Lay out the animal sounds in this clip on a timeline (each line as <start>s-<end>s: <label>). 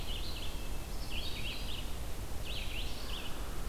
0.0s-3.7s: Red-eyed Vireo (Vireo olivaceus)